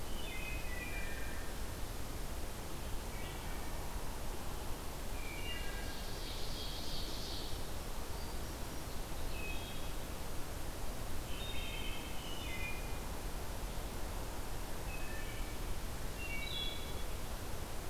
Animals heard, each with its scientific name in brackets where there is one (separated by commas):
Wood Thrush (Hylocichla mustelina), Black-throated Green Warbler (Setophaga virens), Ovenbird (Seiurus aurocapilla)